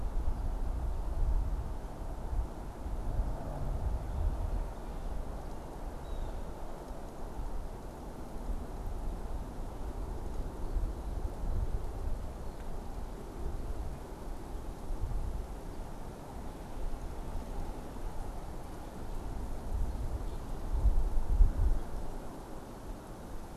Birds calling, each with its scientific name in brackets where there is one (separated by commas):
Blue Jay (Cyanocitta cristata)